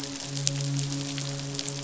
{"label": "biophony, midshipman", "recorder": "SoundTrap 500"}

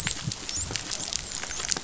{"label": "biophony, dolphin", "recorder": "SoundTrap 500"}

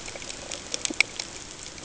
{"label": "ambient", "recorder": "HydroMoth"}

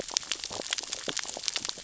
{"label": "biophony, sea urchins (Echinidae)", "recorder": "SoundTrap 600 or HydroMoth"}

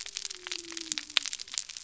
{"label": "biophony", "recorder": "SoundTrap 300"}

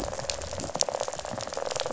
{"label": "biophony, rattle", "recorder": "SoundTrap 500"}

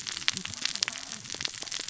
{"label": "biophony, cascading saw", "recorder": "SoundTrap 600 or HydroMoth"}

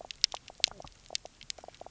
{"label": "biophony, knock croak", "recorder": "SoundTrap 300"}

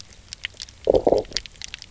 {"label": "biophony, low growl", "recorder": "SoundTrap 300"}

